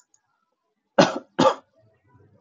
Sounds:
Cough